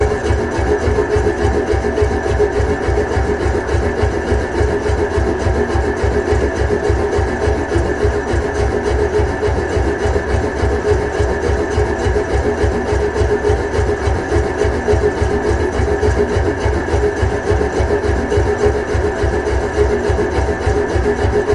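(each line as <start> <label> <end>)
0.0 A hydraulic hammer is making mechanical noise while operating. 21.5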